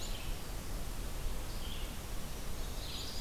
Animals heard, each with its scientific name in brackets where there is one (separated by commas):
Ovenbird (Seiurus aurocapilla), Black-throated Green Warbler (Setophaga virens), Red-eyed Vireo (Vireo olivaceus)